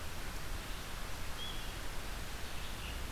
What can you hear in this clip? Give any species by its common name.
Red-eyed Vireo